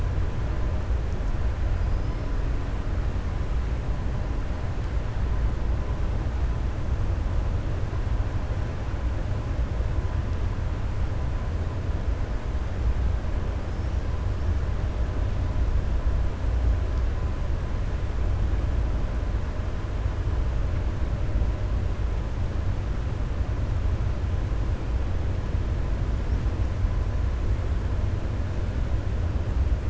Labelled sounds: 1.8	2.2	killer whale, 4.8 to 5.5 kHz

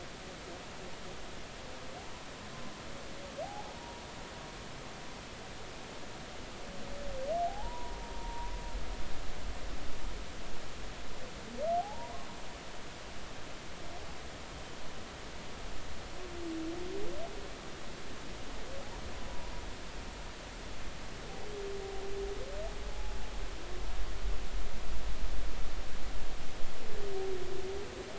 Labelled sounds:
3.4	4.0	humpback whale, 0.80 to 0.99 kHz
7.5	8.5	humpback whale, 0.80 to 1.0 kHz
11.8	12.3	humpback whale, 0.80 to 1.1 kHz
22.9	23.1	humpback whale, 0.80 to 0.90 kHz

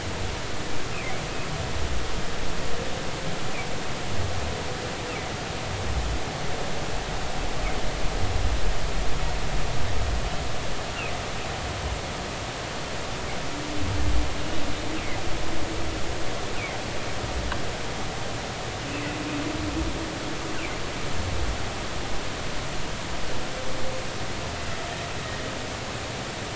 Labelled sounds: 18.9	19.2	humpback whale, 2.5 to 2.7 kHz
25.2	25.5	humpback whale, 1.7 to 2.0 kHz

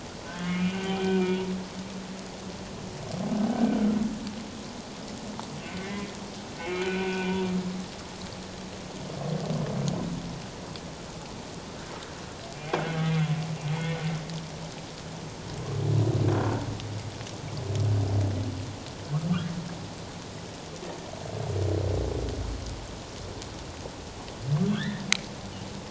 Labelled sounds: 0.3	1.5	humpback whale, 1.5 to 2.5 kHz
3.5	3.8	humpback whale, 1.5 to 1.6 kHz
5.8	7.4	humpback whale, 0.91 to 2.5 kHz
13.0	13.3	humpback whale, 2.0 to 2.2 kHz
13.7	14.0	humpback whale, 2.1 to 2.2 kHz
24.7	25.0	humpback whale, 1.3 to 3.8 kHz

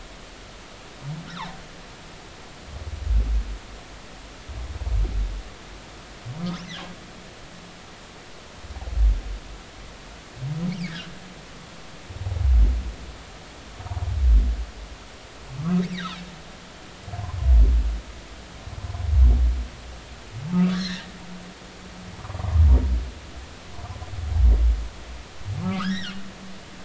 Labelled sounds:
1.3	1.5	humpback whale, 3.4 to 4.1 kHz
15.6	16.1	humpback whale, 1.0 to 5.7 kHz
20.5	21.1	humpback whale, 1.1 to 5.6 kHz
22.3	22.6	humpback whale, 0.93 to 1.2 kHz
25.6	26.2	humpback whale, 0.99 to 4.1 kHz

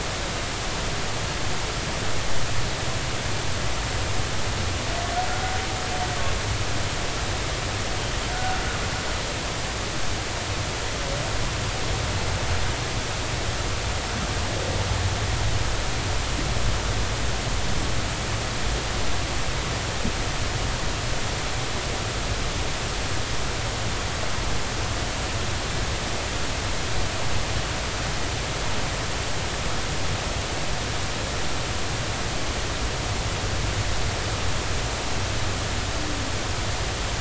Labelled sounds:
8.3	8.6	humpback whale, 1.4 to 1.5 kHz

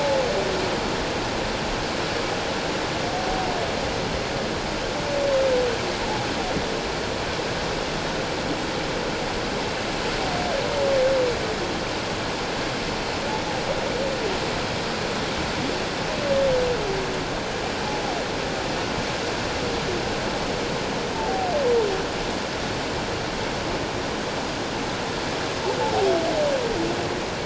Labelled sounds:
21.2	21.5	humpback whale, 0.78 to 0.94 kHz

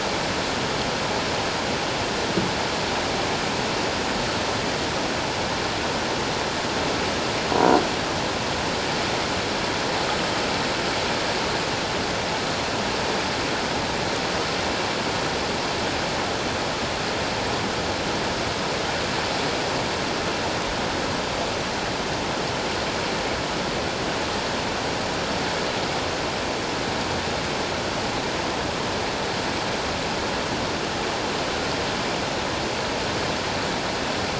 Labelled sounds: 7.6	7.8	croaking sound likely from a nearby submerged object, 0.91 to 1.1 kHz

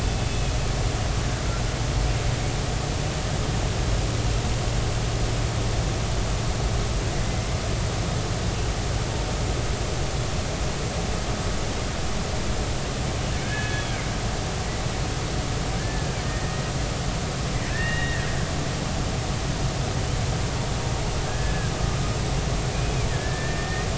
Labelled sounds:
0.0	0.6	killer whale, Bigg's (transient), 2.5 to 2.7 kHz
7.2	7.5	killer whale, Bigg's (transient), 2.0 to 2.1 kHz
13.4	14.0	killer whale, Bigg's (transient), 1.5 to 3.4 kHz
15.8	16.7	killer whale, Bigg's (transient), 1.6 to 2.0 kHz
17.7	18.3	killer whale, Bigg's (transient), 1.6 to 3.8 kHz
21.2	21.7	killer whale, Bigg's (transient), 1.5 to 1.8 kHz
22.7	23.9	killer whale, Bigg's (transient), 1.6 to 2.6 kHz

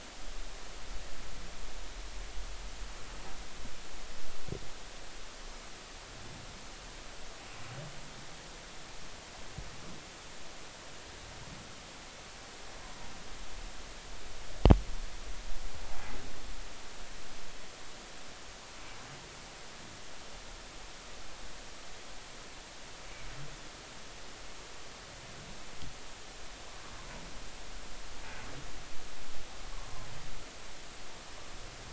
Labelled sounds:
29.7	30.1	humpback whale, 0.93 to 1.2 kHz

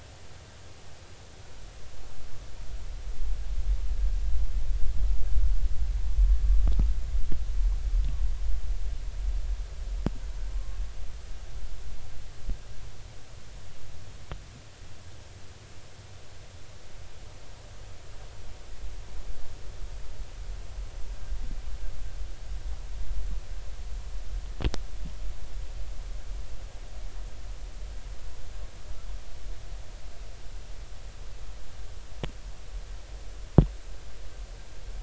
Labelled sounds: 10.5	10.8	humpback whale, 1.0 to 1.2 kHz

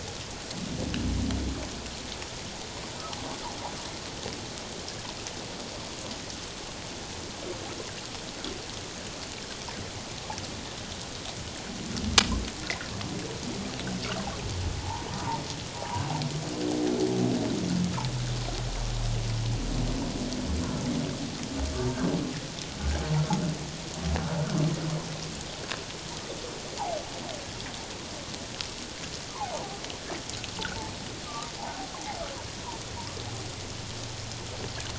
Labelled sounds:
14.8	16.0	humpback whale, 0.78 to 1.1 kHz
29.3	29.6	humpback whale, 0.78 to 1.3 kHz

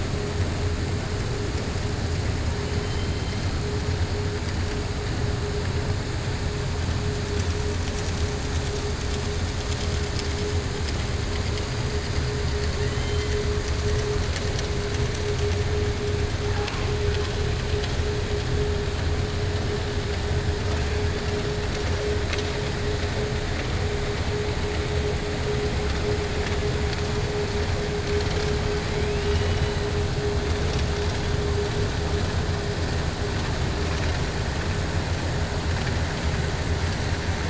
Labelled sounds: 2.8	3.4	killer whale, 2.1 to 4.1 kHz
12.8	13.3	killer whale, 1.1 to 3.2 kHz
28.9	29.8	killer whale, 1.9 to 4.0 kHz

